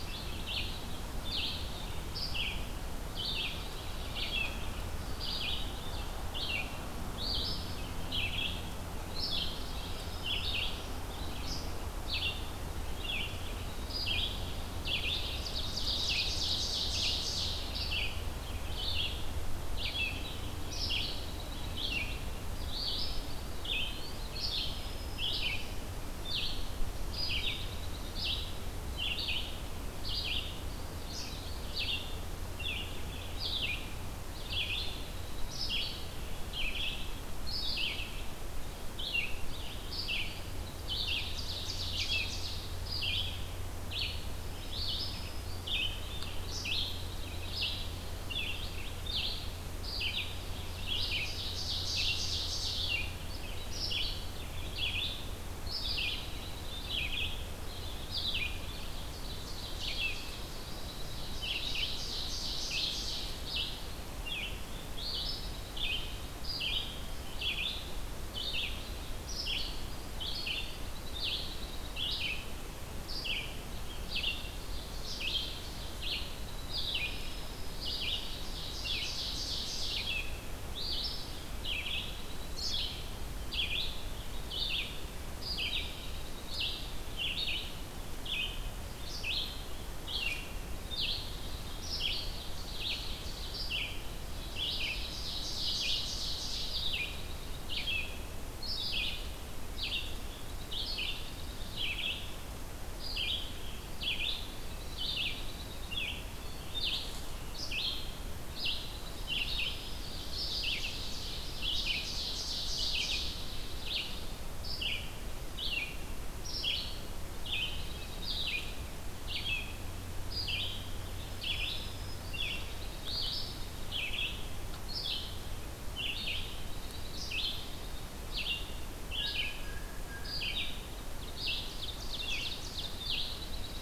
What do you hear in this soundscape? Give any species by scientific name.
Vireo olivaceus, Setophaga virens, Seiurus aurocapilla, Contopus virens, Junco hyemalis, Cyanocitta cristata